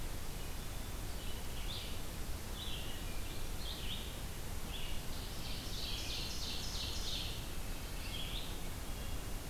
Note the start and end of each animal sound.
[0.00, 9.49] Red-eyed Vireo (Vireo olivaceus)
[2.68, 3.49] Wood Thrush (Hylocichla mustelina)
[5.13, 7.62] Ovenbird (Seiurus aurocapilla)

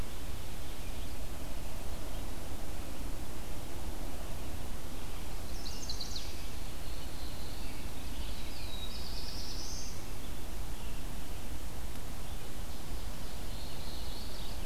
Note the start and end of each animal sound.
[5.44, 6.25] Chestnut-sided Warbler (Setophaga pensylvanica)
[6.51, 7.85] Black-throated Blue Warbler (Setophaga caerulescens)
[8.12, 10.09] Black-throated Blue Warbler (Setophaga caerulescens)
[13.10, 14.44] Black-throated Blue Warbler (Setophaga caerulescens)
[13.92, 14.66] Mourning Warbler (Geothlypis philadelphia)

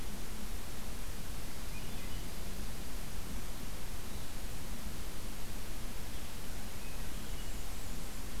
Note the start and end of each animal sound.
[1.49, 2.46] Swainson's Thrush (Catharus ustulatus)
[6.66, 7.60] Swainson's Thrush (Catharus ustulatus)
[7.06, 8.27] Blackburnian Warbler (Setophaga fusca)

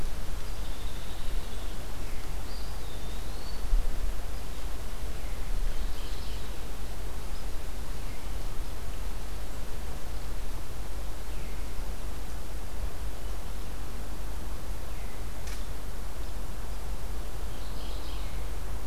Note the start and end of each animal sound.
[0.33, 1.85] unidentified call
[2.38, 3.68] Eastern Wood-Pewee (Contopus virens)
[5.59, 6.58] Mourning Warbler (Geothlypis philadelphia)
[17.34, 18.41] Mourning Warbler (Geothlypis philadelphia)

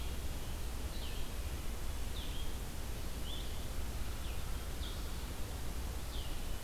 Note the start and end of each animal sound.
[0.80, 6.64] Blue-headed Vireo (Vireo solitarius)

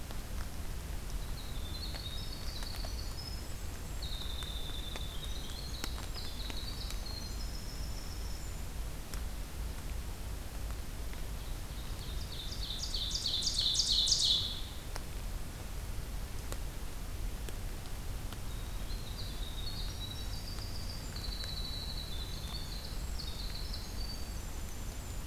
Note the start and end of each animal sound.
[1.12, 8.75] Winter Wren (Troglodytes hiemalis)
[11.28, 14.63] Ovenbird (Seiurus aurocapilla)
[18.50, 25.27] Winter Wren (Troglodytes hiemalis)

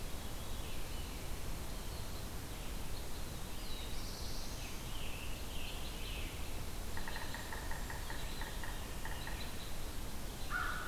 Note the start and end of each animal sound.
[0.00, 1.22] Veery (Catharus fuscescens)
[0.00, 4.02] Red-eyed Vireo (Vireo olivaceus)
[1.23, 3.41] American Robin (Turdus migratorius)
[2.93, 5.06] Black-throated Blue Warbler (Setophaga caerulescens)
[4.34, 6.60] Scarlet Tanager (Piranga olivacea)
[6.07, 10.87] Red-eyed Vireo (Vireo olivaceus)
[6.77, 9.52] Yellow-bellied Sapsucker (Sphyrapicus varius)
[6.83, 10.87] American Robin (Turdus migratorius)
[6.84, 8.56] Blackburnian Warbler (Setophaga fusca)
[10.27, 10.87] American Crow (Corvus brachyrhynchos)

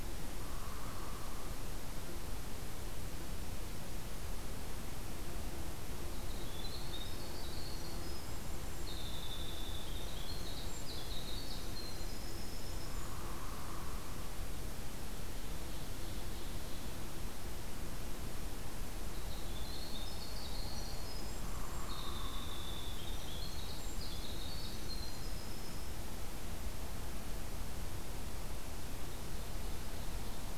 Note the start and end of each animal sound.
[0.37, 1.61] Hairy Woodpecker (Dryobates villosus)
[6.13, 13.13] Winter Wren (Troglodytes hiemalis)
[12.88, 14.27] Hairy Woodpecker (Dryobates villosus)
[15.24, 16.91] Ovenbird (Seiurus aurocapilla)
[19.08, 25.91] Winter Wren (Troglodytes hiemalis)
[21.41, 22.54] Hairy Woodpecker (Dryobates villosus)
[28.87, 30.58] Ovenbird (Seiurus aurocapilla)

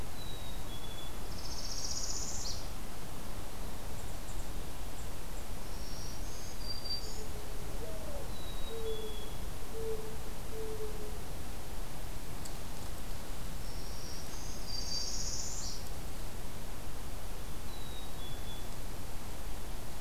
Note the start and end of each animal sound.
[0.00, 1.34] Black-capped Chickadee (Poecile atricapillus)
[0.94, 2.97] Northern Parula (Setophaga americana)
[5.44, 7.52] Black-throated Green Warbler (Setophaga virens)
[6.91, 11.44] Mourning Dove (Zenaida macroura)
[8.15, 9.50] Black-capped Chickadee (Poecile atricapillus)
[13.54, 15.25] Black-throated Green Warbler (Setophaga virens)
[13.76, 15.79] Northern Parula (Setophaga americana)
[17.50, 18.79] Black-capped Chickadee (Poecile atricapillus)

